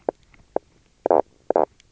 {"label": "biophony, knock croak", "recorder": "SoundTrap 300"}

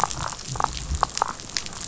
{"label": "biophony, damselfish", "recorder": "SoundTrap 500"}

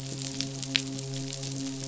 {"label": "biophony, midshipman", "recorder": "SoundTrap 500"}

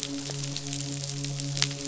{"label": "biophony, midshipman", "recorder": "SoundTrap 500"}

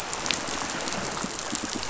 {"label": "biophony, pulse", "recorder": "SoundTrap 500"}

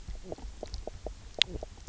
{"label": "biophony, knock croak", "recorder": "SoundTrap 300"}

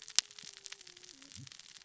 {"label": "biophony, cascading saw", "recorder": "SoundTrap 600 or HydroMoth"}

